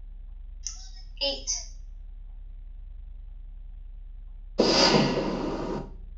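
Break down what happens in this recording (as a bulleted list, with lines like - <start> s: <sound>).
- 0.7 s: someone says "Eight."
- 4.6 s: fireworks can be heard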